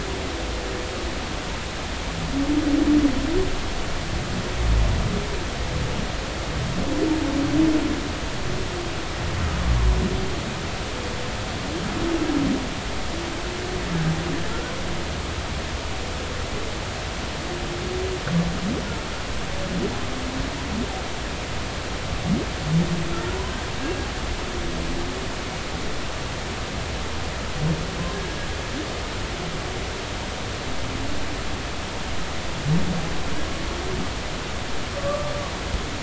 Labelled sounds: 35.0	35.3	humpback whale, 1.1 to 1.2 kHz

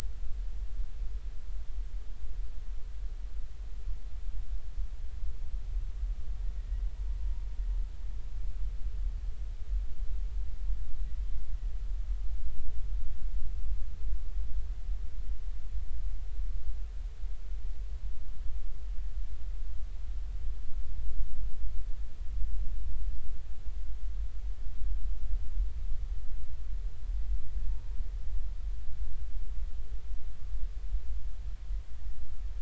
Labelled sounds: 6.6	7.5	humpback whale, 0.90 to 2.0 kHz

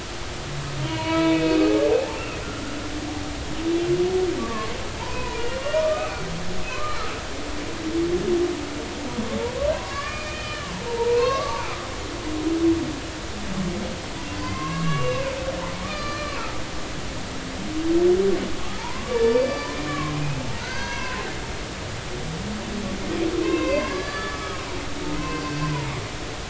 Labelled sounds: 0.9	2.2	humpback whale, 0.80 to 4.0 kHz
4.4	5.5	humpback whale, 0.86 to 1.2 kHz
5.8	6.3	humpback whale, 1.2 to 2.8 kHz
6.7	7.0	humpback whale, 0.96 to 1.3 kHz
9.7	11.9	humpback whale, 0.83 to 4.9 kHz
14.3	15.4	humpback whale, 0.96 to 4.7 kHz
15.8	16.4	humpback whale, 1.1 to 4.9 kHz
18.8	21.3	humpback whale, 0.83 to 6.0 kHz
23.4	24.6	humpback whale, 0.90 to 5.0 kHz
25.2	25.4	humpback whale, 0.99 to 1.1 kHz

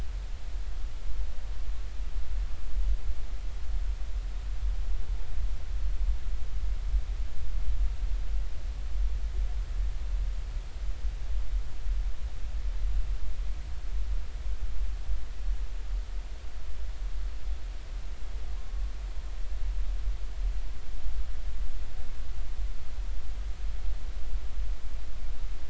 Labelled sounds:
18.6	18.8	humpback whale, 0.93 to 1.1 kHz

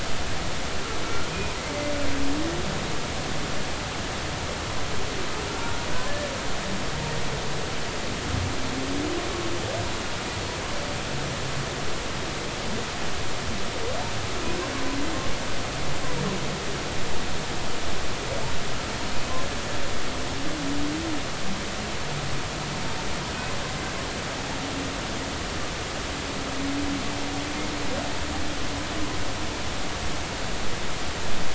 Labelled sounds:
1.3	1.5	humpback whale, 2.3 to 2.6 kHz

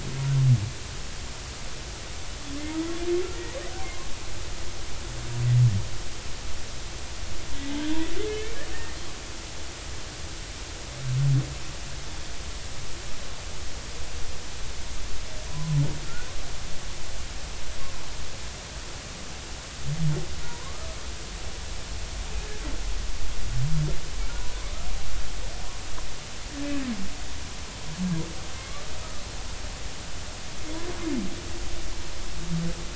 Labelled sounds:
8.3	8.5	humpback whale, 2.1 to 2.4 kHz
15.5	16.3	humpback whale, 0.96 to 1.5 kHz
20.4	20.9	humpback whale, 0.90 to 1.3 kHz

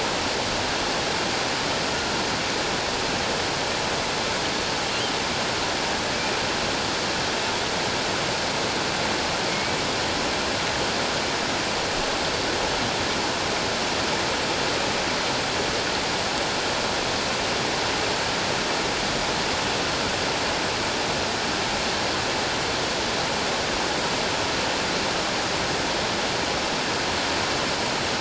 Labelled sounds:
9.5	9.7	killer whale, offshore, 2.1 to 2.3 kHz

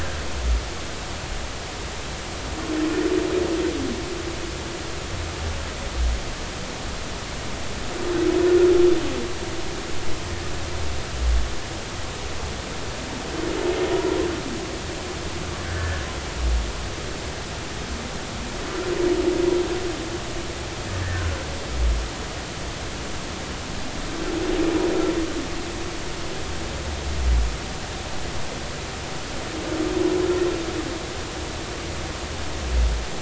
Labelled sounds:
15.6	16.0	humpback whale, 1.4 to 1.8 kHz
21.1	21.4	humpback whale, 1.4 to 1.6 kHz

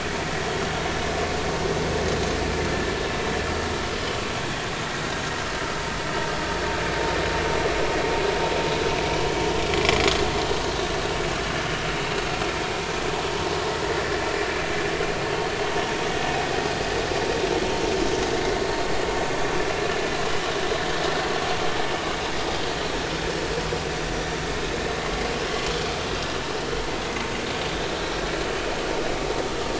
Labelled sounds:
9.7	10.0	vessel noise, 2.0 to 2.2 kHz

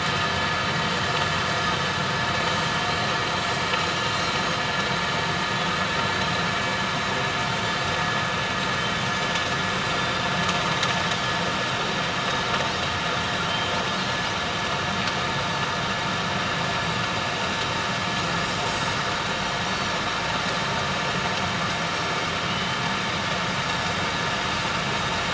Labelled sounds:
1.6	1.9	Pacific white-sided dolphin, 3.6 to 6.4 kHz
3.3	4.4	Pacific white-sided dolphin, 4.1 to 7.7 kHz
9.9	10.2	Pacific white-sided dolphin, 4.6 to 4.8 kHz
13.5	13.7	Pacific white-sided dolphin, 2.9 to 3.2 kHz
18.7	19.0	Pacific white-sided dolphin, 6.4 to 6.8 kHz
22.5	22.8	Pacific white-sided dolphin, 2.8 to 3.1 kHz

